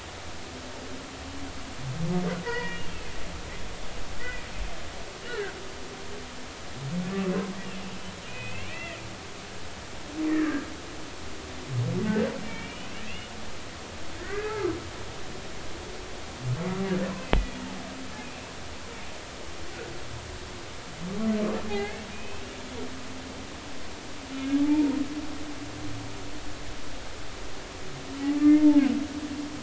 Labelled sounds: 2.4	3.1	humpback whale, 0.90 to 4.9 kHz
4.2	4.5	humpback whale, 2.3 to 2.5 kHz
5.2	5.5	humpback whale, 1.4 to 2.0 kHz
8.3	9.0	humpback whale, 1.8 to 2.9 kHz
10.3	10.7	humpback whale, 1.5 to 2.0 kHz
12.1	13.3	humpback whale, 1.5 to 3.0 kHz
14.2	14.8	humpback whale, 1.1 to 2.1 kHz
17.2	17.6	humpback whale, 1.9 to 3.5 kHz
21.7	22.4	humpback whale, 0.80 to 2.8 kHz
24.3	25.0	humpback whale, 0.83 to 2.5 kHz
28.4	28.8	humpback whale, 0.80 to 2.2 kHz

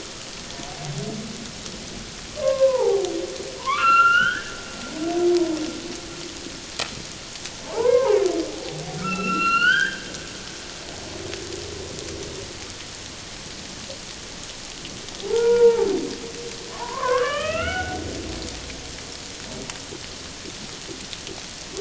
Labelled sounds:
2.4	4.5	humpback whale, 0.78 to 4.2 kHz
7.6	10.1	humpback whale, 0.78 to 4.8 kHz
15.2	15.9	humpback whale, 0.78 to 2.4 kHz
16.7	18.0	humpback whale, 0.78 to 3.3 kHz

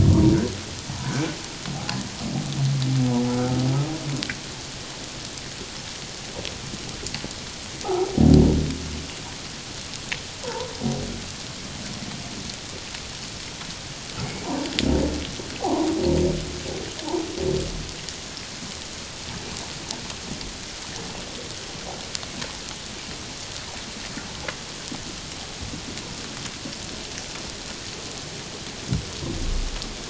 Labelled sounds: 0.1	0.4	humpback whale, 0.91 to 1.2 kHz
1.7	2.0	humpback whale, 0.78 to 0.88 kHz
7.8	8.1	humpback whale, 0.78 to 1.4 kHz
10.4	10.7	humpback whale, 0.84 to 1.1 kHz
15.6	15.9	humpback whale, 0.78 to 1.2 kHz

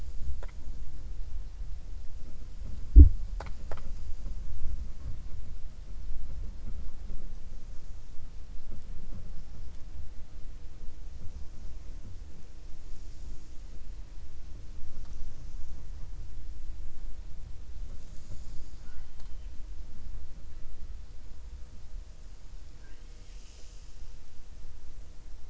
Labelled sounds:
18.7	19.5	killer whale, 0.75 to 4.8 kHz

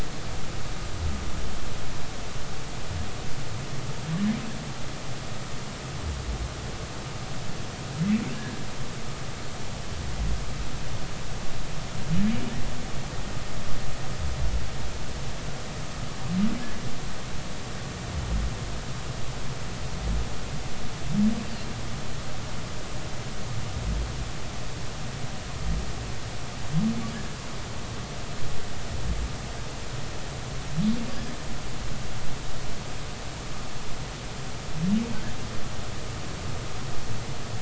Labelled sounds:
8.3	8.6	humpback whale, 1.5 to 1.8 kHz

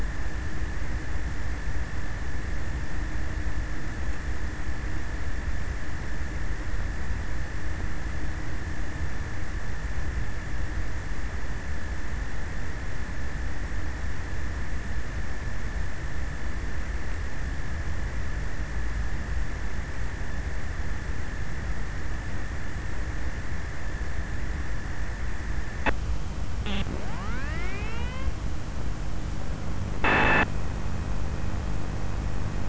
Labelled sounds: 24.9	32.6	abiotic sound, 0 to 8.0 kHz

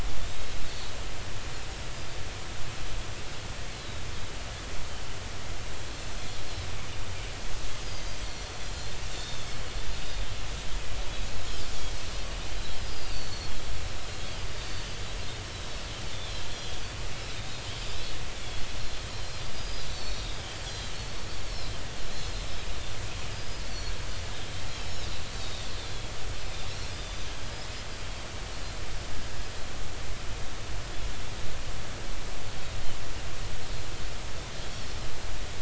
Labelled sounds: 0.2	0.5	Pacific white-sided dolphin, 3.4 to 3.9 kHz
5.9	6.3	Pacific white-sided dolphin, 5.8 to 7.3 kHz
8.7	9.5	Pacific white-sided dolphin, 3.4 to 4.3 kHz
12.8	14.9	Pacific white-sided dolphin, 2.9 to 5.0 kHz
16.5	16.8	Pacific white-sided dolphin, 3.1 to 3.5 kHz
17.3	17.6	Pacific white-sided dolphin, 3.6 to 3.9 kHz
19.1	20.4	Pacific white-sided dolphin, 3.6 to 7.4 kHz
20.7	21.8	Pacific white-sided dolphin, 3.8 to 4.7 kHz
23.3	24.0	Pacific white-sided dolphin, 4.3 to 6.0 kHz
25.8	26.1	Pacific white-sided dolphin, 3.2 to 3.7 kHz
27.0	27.3	Pacific white-sided dolphin, 3.4 to 3.8 kHz

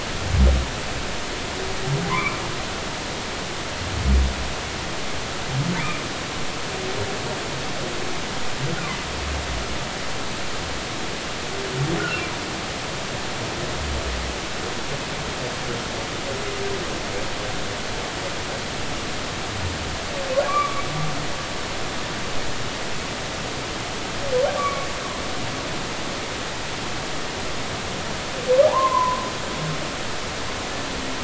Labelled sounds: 2.1	2.4	humpback whale, 0.90 to 2.5 kHz
5.8	6.0	humpback whale, 1.9 to 2.5 kHz
12.0	12.3	humpback whale, 2.7 to 3.0 kHz
20.5	20.8	humpback whale, 1.1 to 1.2 kHz
24.6	24.9	humpback whale, 1.0 to 1.2 kHz
28.7	29.2	humpback whale, 0.80 to 1.1 kHz

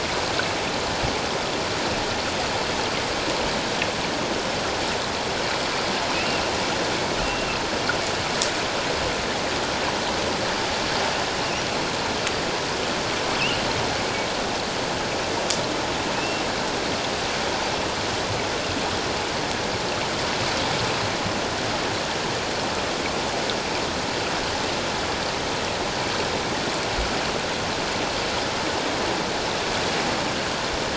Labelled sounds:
6.1	6.4	killer whale, offshore, 2.5 to 2.8 kHz
7.2	7.6	killer whale, offshore, 2.6 to 2.8 kHz
16.1	16.4	killer whale, offshore, 2.4 to 2.8 kHz

